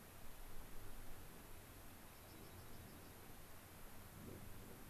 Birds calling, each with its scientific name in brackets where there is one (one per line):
Dark-eyed Junco (Junco hyemalis)